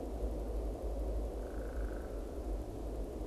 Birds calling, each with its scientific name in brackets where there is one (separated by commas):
Downy Woodpecker (Dryobates pubescens)